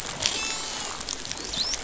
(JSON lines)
{"label": "biophony, dolphin", "recorder": "SoundTrap 500"}